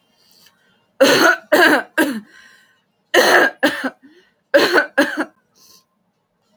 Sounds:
Laughter